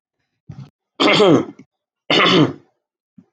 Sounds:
Throat clearing